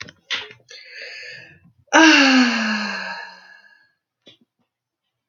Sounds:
Sigh